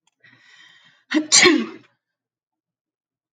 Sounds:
Sneeze